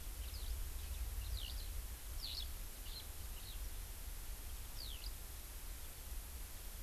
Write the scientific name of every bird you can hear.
Haemorhous mexicanus